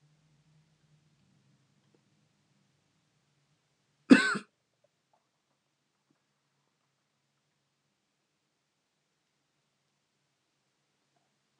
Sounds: Throat clearing